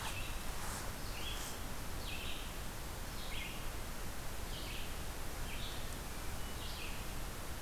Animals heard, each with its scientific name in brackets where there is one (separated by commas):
Red-eyed Vireo (Vireo olivaceus)